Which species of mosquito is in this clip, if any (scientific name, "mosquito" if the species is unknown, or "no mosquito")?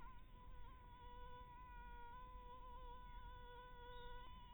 Anopheles maculatus